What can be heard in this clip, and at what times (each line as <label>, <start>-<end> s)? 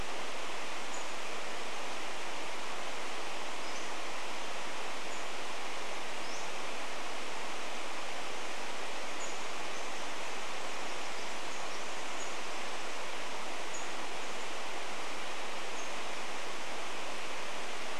Pacific-slope Flycatcher call, 0-10 s
Pacific Wren song, 10-14 s
Pacific-slope Flycatcher call, 12-16 s